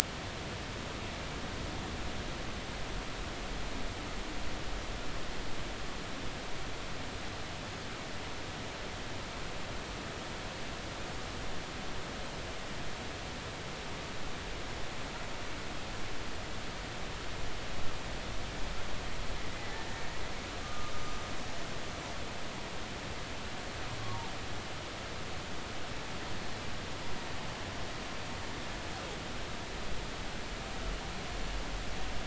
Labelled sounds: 19.7	20.9	humpback whale, 1.2 to 1.9 kHz
24.0	24.3	humpback whale, 0.80 to 1.2 kHz

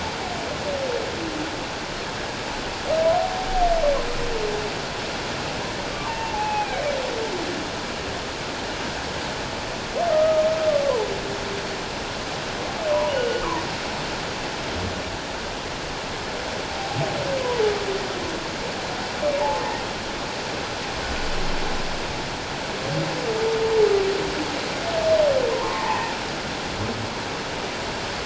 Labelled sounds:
5.9	6.8	humpback whale, 0.78 to 2.8 kHz
10.1	10.4	humpback whale, 1.2 to 1.3 kHz
13.1	13.4	humpback whale, 1.4 to 3.0 kHz
19.4	19.6	humpback whale, 0.81 to 0.97 kHz
25.5	26.1	humpback whale, 0.81 to 1.1 kHz

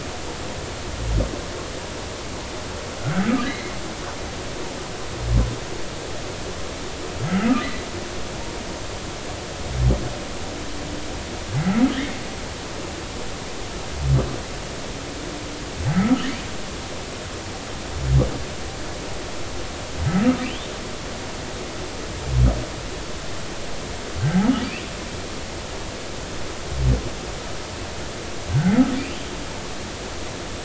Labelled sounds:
3.0	3.7	humpback whale, 1.2 to 2.2 kHz
11.6	12.2	humpback whale, 1.7 to 2.2 kHz
16.0	16.3	humpback whale, 1.2 to 1.4 kHz
20.1	20.4	humpback whale, 1.2 to 1.3 kHz
29.0	29.3	humpback whale, 2.3 to 3.2 kHz

